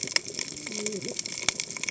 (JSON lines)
{"label": "biophony, cascading saw", "recorder": "HydroMoth"}